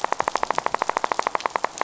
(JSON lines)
{"label": "biophony, rattle", "recorder": "SoundTrap 500"}